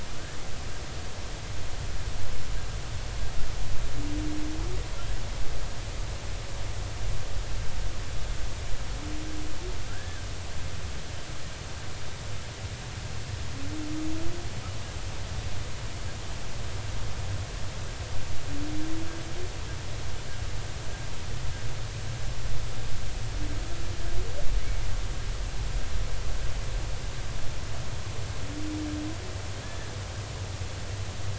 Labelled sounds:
9.9	10.3	humpback whale, 1.3 to 1.8 kHz
29.6	29.9	humpback whale, 1.6 to 1.9 kHz

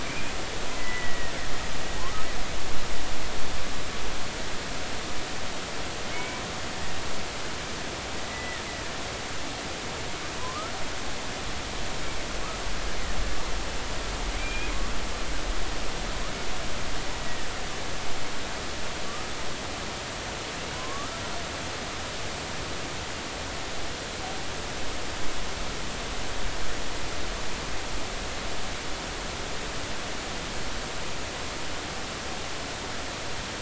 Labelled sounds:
0.0	1.3	killer whale, Bigg's (transient), 1.8 to 2.6 kHz
6.1	6.4	killer whale, Bigg's (transient), 2.1 to 2.4 kHz
8.2	8.6	killer whale, Bigg's (transient), 1.7 to 2.0 kHz
10.4	10.7	killer whale, Bigg's (transient), 0.96 to 1.4 kHz
14.4	14.7	killer whale, Bigg's (transient), 2.3 to 2.5 kHz
17.2	17.5	killer whale, Bigg's (transient), 1.7 to 2.0 kHz
19.1	19.3	killer whale, Bigg's (transient), 1.1 to 1.3 kHz
20.7	21.1	killer whale, Bigg's (transient), 0.96 to 1.3 kHz

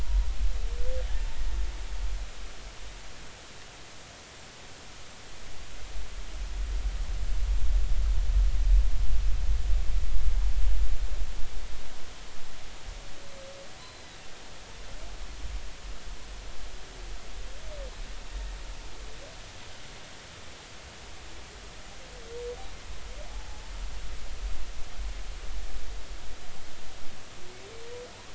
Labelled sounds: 0.0	0.3	humpback whale, 0.93 to 1.1 kHz
1.1	1.4	humpback whale, 0.83 to 0.93 kHz
13.8	14.1	humpback whale, 3.9 to 4.2 kHz

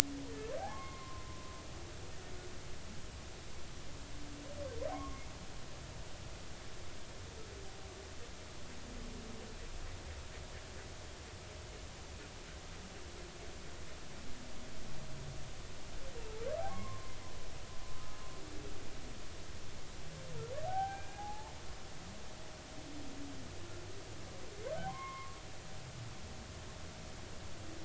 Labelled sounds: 0.7	1.2	humpback whale, 0.99 to 2.2 kHz
4.9	5.2	humpback whale, 0.99 to 1.2 kHz
16.7	17.2	humpback whale, 0.96 to 2.2 kHz
20.6	21.5	humpback whale, 0.80 to 2.5 kHz
24.8	25.4	humpback whale, 0.80 to 3.3 kHz

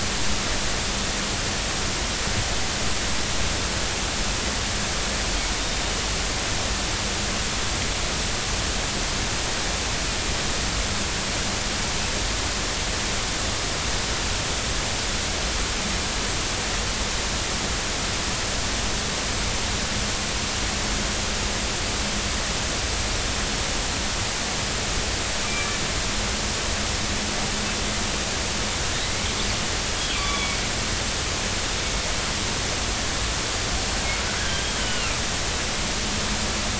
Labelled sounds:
25.5	25.8	killer whale, northern resident, 2.3 to 2.4 kHz
29.0	29.3	killer whale, northern resident, 1.9 to 2.3 kHz
30.1	30.6	killer whale, northern resident, 0.99 to 3.5 kHz
34.4	35.2	killer whale, northern resident, 1.5 to 3.1 kHz

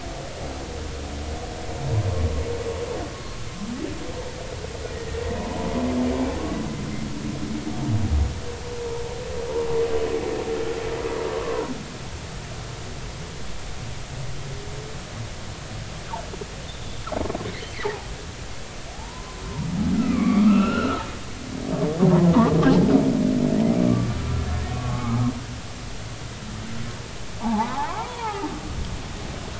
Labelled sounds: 11.3	11.7	humpback whale, 0.96 to 1.2 kHz
17.8	18.1	humpback whale, 0.80 to 0.99 kHz
18.9	21.0	humpback whale, 0.80 to 3.0 kHz
22.1	22.9	humpback whale, 0.80 to 1.1 kHz
23.8	24.1	humpback whale, 1.1 to 1.2 kHz
24.7	25.3	humpback whale, 0.99 to 1.3 kHz
27.4	28.5	humpback whale, 0.80 to 1.4 kHz

